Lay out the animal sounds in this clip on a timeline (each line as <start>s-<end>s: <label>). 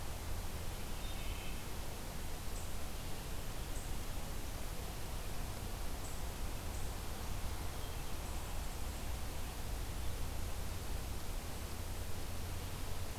0.8s-1.6s: Wood Thrush (Hylocichla mustelina)